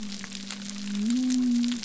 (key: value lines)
label: biophony
recorder: SoundTrap 300